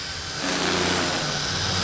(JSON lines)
{"label": "anthrophony, boat engine", "recorder": "SoundTrap 500"}